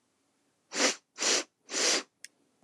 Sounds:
Sniff